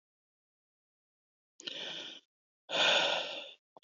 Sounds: Sigh